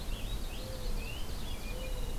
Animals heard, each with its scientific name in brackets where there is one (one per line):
Purple Finch (Haemorhous purpureus)
Ovenbird (Seiurus aurocapilla)
Mourning Dove (Zenaida macroura)